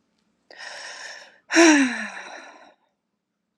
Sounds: Sigh